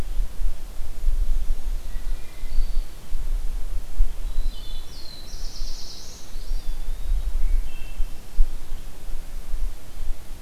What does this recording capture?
Wood Thrush, Black-throated Blue Warbler, Eastern Wood-Pewee